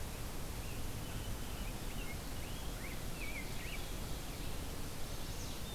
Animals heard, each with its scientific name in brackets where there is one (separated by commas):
Rose-breasted Grosbeak (Pheucticus ludovicianus), Chestnut-sided Warbler (Setophaga pensylvanica), Ovenbird (Seiurus aurocapilla)